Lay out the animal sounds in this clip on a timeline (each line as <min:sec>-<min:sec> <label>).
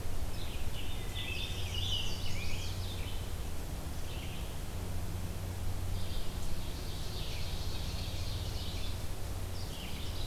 0:00.0-0:06.5 Red-eyed Vireo (Vireo olivaceus)
0:00.5-0:01.4 Wood Thrush (Hylocichla mustelina)
0:00.7-0:02.8 Scarlet Tanager (Piranga olivacea)
0:01.4-0:03.1 Chestnut-sided Warbler (Setophaga pensylvanica)
0:06.7-0:09.1 Ovenbird (Seiurus aurocapilla)